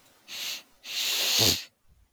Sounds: Sniff